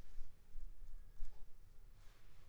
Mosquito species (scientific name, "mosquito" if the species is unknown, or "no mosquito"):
Anopheles squamosus